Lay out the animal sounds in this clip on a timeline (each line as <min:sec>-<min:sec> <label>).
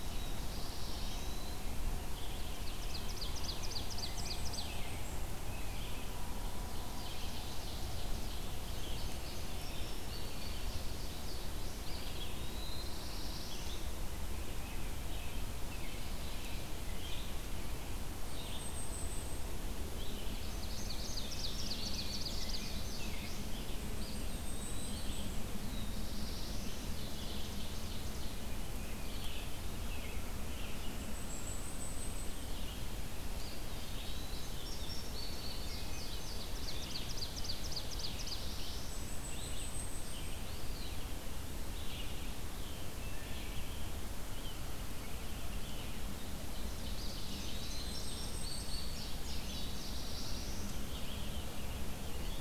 0:00.0-0:01.5 Black-throated Blue Warbler (Setophaga caerulescens)
0:00.0-0:37.1 Red-eyed Vireo (Vireo olivaceus)
0:00.4-0:01.7 Eastern Wood-Pewee (Contopus virens)
0:01.9-0:05.1 American Robin (Turdus migratorius)
0:02.3-0:04.8 Ovenbird (Seiurus aurocapilla)
0:03.9-0:05.5 Blackpoll Warbler (Setophaga striata)
0:06.6-0:08.5 Ovenbird (Seiurus aurocapilla)
0:08.3-0:11.8 Indigo Bunting (Passerina cyanea)
0:11.7-0:13.1 Eastern Wood-Pewee (Contopus virens)
0:12.2-0:13.8 Black-throated Blue Warbler (Setophaga caerulescens)
0:14.2-0:17.5 American Robin (Turdus migratorius)
0:18.2-0:19.5 Blackpoll Warbler (Setophaga striata)
0:19.9-0:23.5 Indigo Bunting (Passerina cyanea)
0:20.4-0:23.1 Ovenbird (Seiurus aurocapilla)
0:23.5-0:25.3 Blackpoll Warbler (Setophaga striata)
0:23.9-0:25.4 Eastern Wood-Pewee (Contopus virens)
0:25.6-0:27.0 Black-throated Blue Warbler (Setophaga caerulescens)
0:26.7-0:28.4 Ovenbird (Seiurus aurocapilla)
0:28.9-0:31.2 American Robin (Turdus migratorius)
0:30.9-0:32.5 Blackpoll Warbler (Setophaga striata)
0:33.2-0:34.7 Eastern Wood-Pewee (Contopus virens)
0:34.1-0:36.6 Indigo Bunting (Passerina cyanea)
0:36.3-0:38.5 Ovenbird (Seiurus aurocapilla)
0:37.8-0:39.2 Black-throated Blue Warbler (Setophaga caerulescens)
0:38.0-0:52.4 Red-eyed Vireo (Vireo olivaceus)
0:38.7-0:40.5 Blackpoll Warbler (Setophaga striata)
0:40.3-0:41.4 Eastern Wood-Pewee (Contopus virens)
0:42.9-0:43.6 Wood Thrush (Hylocichla mustelina)
0:46.4-0:48.2 Ovenbird (Seiurus aurocapilla)
0:46.8-0:48.2 Eastern Wood-Pewee (Contopus virens)
0:47.6-0:49.0 Blackpoll Warbler (Setophaga striata)
0:47.7-0:50.1 Indigo Bunting (Passerina cyanea)
0:49.2-0:50.8 Black-throated Blue Warbler (Setophaga caerulescens)
0:50.8-0:52.4 American Robin (Turdus migratorius)